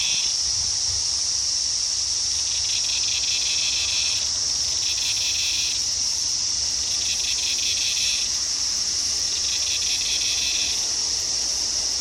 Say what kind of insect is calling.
cicada